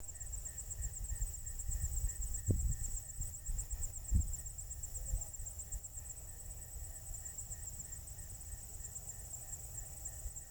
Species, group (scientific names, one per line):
Neocurtilla hexadactyla
Orthoptera